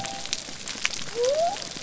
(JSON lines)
{"label": "biophony", "recorder": "SoundTrap 300"}